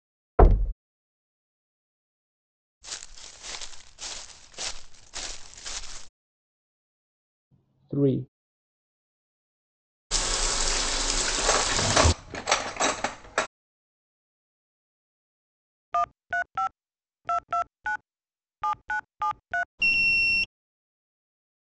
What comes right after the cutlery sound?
telephone